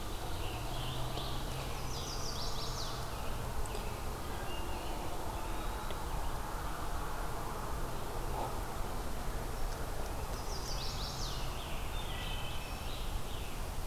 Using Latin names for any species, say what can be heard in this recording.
Piranga olivacea, Setophaga pensylvanica, Turdus migratorius, Hylocichla mustelina, Contopus virens